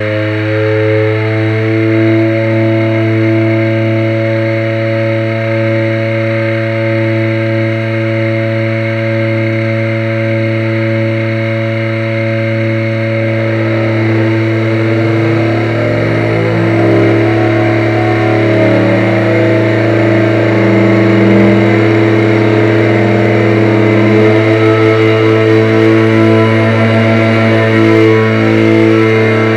Is a machine in operation?
yes